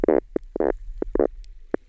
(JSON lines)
{"label": "biophony, knock croak", "recorder": "SoundTrap 300"}